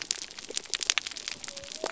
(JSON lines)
{"label": "biophony", "recorder": "SoundTrap 300"}